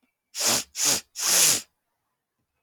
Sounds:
Sniff